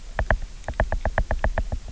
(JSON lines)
{"label": "biophony, knock", "recorder": "SoundTrap 300"}